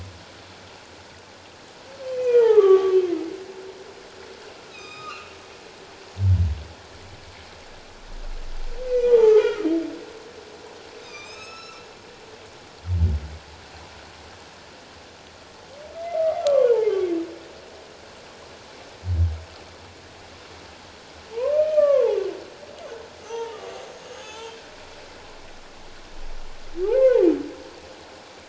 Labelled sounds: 2.2	3.0	humpback whale, 0.78 to 2.6 kHz
4.6	5.3	humpback whale, 1.1 to 5.2 kHz
8.9	9.7	humpback whale, 0.81 to 6.1 kHz
11.0	11.9	humpback whale, 1.1 to 6.8 kHz
16.4	16.7	humpback whale, 1.0 to 1.2 kHz
21.3	22.2	humpback whale, 0.78 to 1.8 kHz
23.2	24.6	humpback whale, 0.78 to 6.7 kHz
26.9	27.2	humpback whale, 0.81 to 2.2 kHz

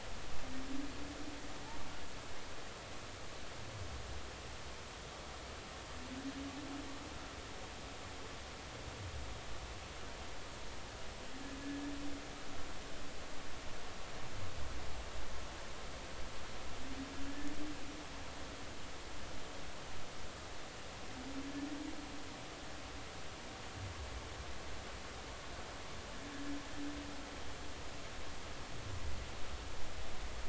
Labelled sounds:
17.3	17.5	humpback whale, 1.7 to 1.8 kHz

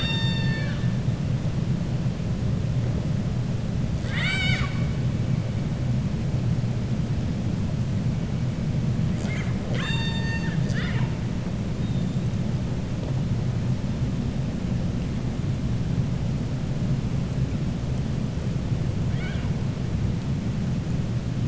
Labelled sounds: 3.9	4.8	killer whale, 0.95 to 7.8 kHz
19.0	19.5	killer whale, 0.97 to 4.5 kHz

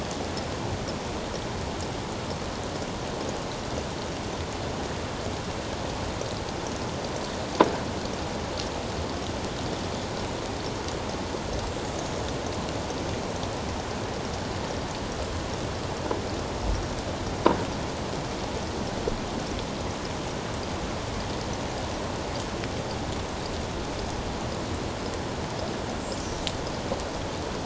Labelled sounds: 26.2	26.5	killer whale, 5.8 to 6.1 kHz

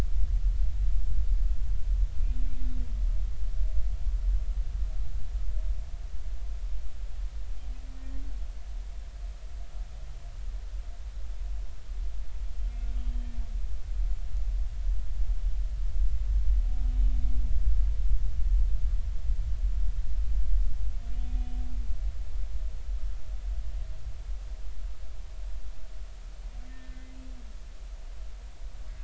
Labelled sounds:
8.0	8.2	humpback whale, 1.8 to 1.9 kHz
13.0	13.3	humpback whale, 3.1 to 3.2 kHz
21.3	21.5	humpback whale, 2.4 to 2.5 kHz
26.7	27.1	humpback whale, 1.7 to 2.1 kHz

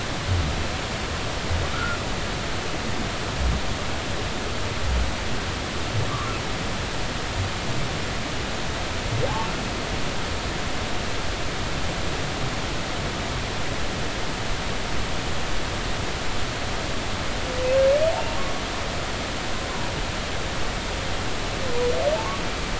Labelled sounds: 1.7	2.0	humpback whale, 1.2 to 1.5 kHz
9.3	9.5	humpback whale, 0.80 to 0.96 kHz

